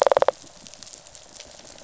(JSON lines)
{"label": "biophony, rattle response", "recorder": "SoundTrap 500"}